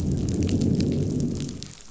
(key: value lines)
label: biophony, growl
recorder: SoundTrap 500